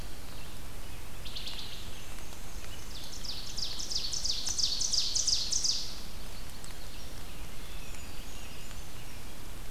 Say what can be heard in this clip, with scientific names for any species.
Hylocichla mustelina, Mniotilta varia, Seiurus aurocapilla, Turdus migratorius, Certhia americana